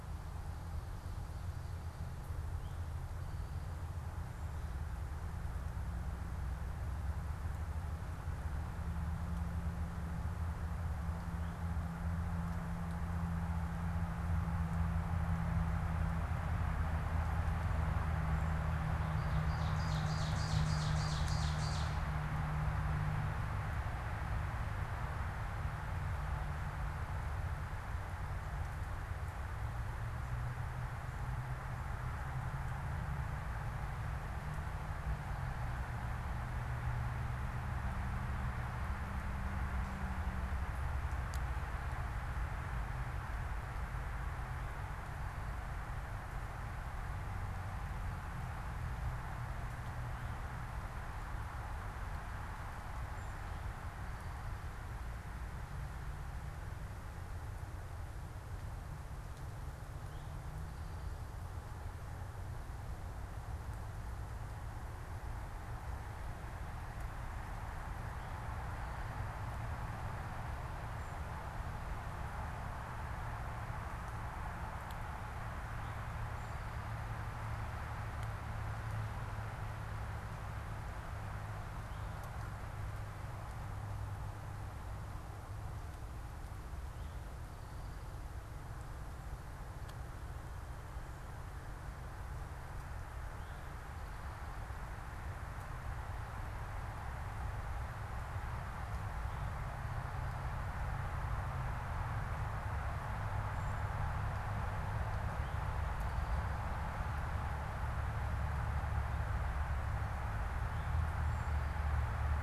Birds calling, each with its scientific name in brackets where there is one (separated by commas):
Ovenbird (Seiurus aurocapilla), unidentified bird, Eastern Towhee (Pipilo erythrophthalmus)